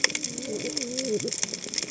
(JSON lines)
{"label": "biophony, cascading saw", "recorder": "HydroMoth"}